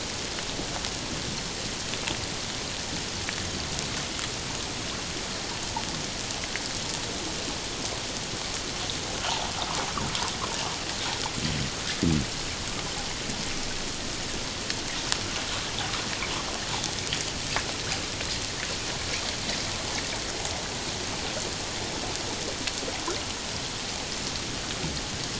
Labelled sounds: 9.2	9.5	water noise, 0.78 to 1.0 kHz

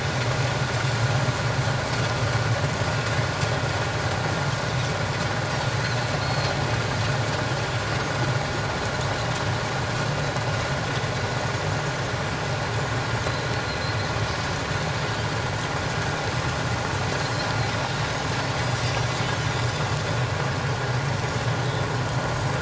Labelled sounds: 6.2	6.5	Pacific white-sided dolphin, 4.1 to 4.4 kHz
17.2	17.5	Pacific white-sided dolphin, 4.0 to 4.4 kHz
18.6	19.2	Pacific white-sided dolphin, 4.6 to 5.9 kHz

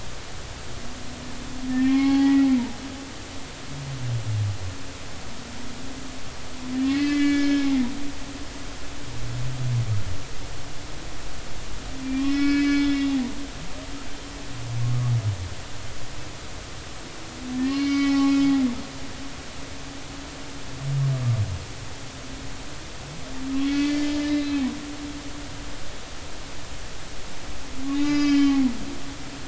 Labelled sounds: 1.7	2.5	humpback whale, 0.80 to 4.4 kHz
6.8	7.9	humpback whale, 1.6 to 4.4 kHz
12.0	13.2	humpback whale, 1.4 to 5.4 kHz
17.6	18.5	humpback whale, 0.80 to 5.9 kHz
23.6	24.6	humpback whale, 1.7 to 4.7 kHz
27.9	29.4	humpback whale, 1.1 to 5.6 kHz

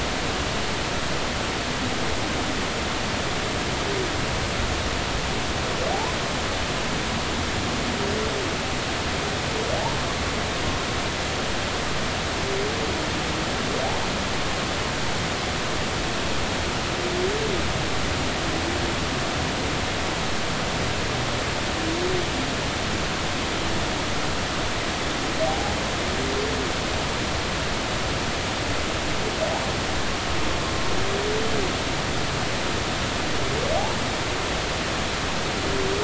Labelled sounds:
25.4	25.7	humpback whale, 0.80 to 0.90 kHz

